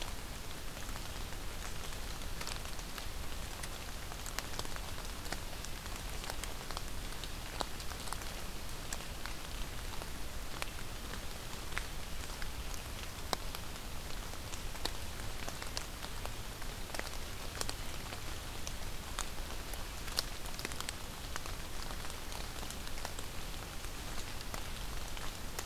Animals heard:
forest ambience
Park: Marsh-Billings-Rockefeller National Historical Park